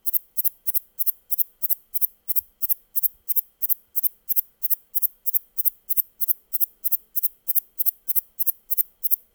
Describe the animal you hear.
Platycleis intermedia, an orthopteran